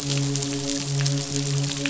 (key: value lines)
label: biophony, midshipman
recorder: SoundTrap 500